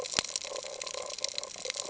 {"label": "ambient", "recorder": "HydroMoth"}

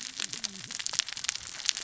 {"label": "biophony, cascading saw", "recorder": "SoundTrap 600 or HydroMoth"}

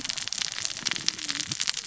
{"label": "biophony, cascading saw", "recorder": "SoundTrap 600 or HydroMoth"}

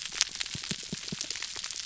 {"label": "biophony, pulse", "recorder": "SoundTrap 300"}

